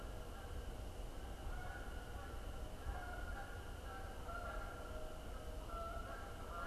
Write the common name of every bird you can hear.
Canada Goose